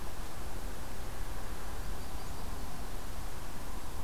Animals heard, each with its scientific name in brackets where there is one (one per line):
Yellow-rumped Warbler (Setophaga coronata)